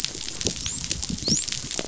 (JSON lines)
{"label": "biophony, dolphin", "recorder": "SoundTrap 500"}